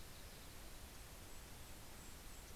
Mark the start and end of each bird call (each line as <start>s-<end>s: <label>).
0.0s-2.5s: Mountain Chickadee (Poecile gambeli)
0.6s-2.6s: Yellow-rumped Warbler (Setophaga coronata)